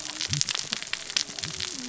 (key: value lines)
label: biophony, cascading saw
recorder: SoundTrap 600 or HydroMoth